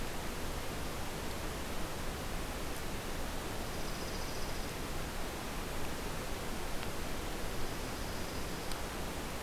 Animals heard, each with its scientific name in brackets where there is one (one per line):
Dark-eyed Junco (Junco hyemalis)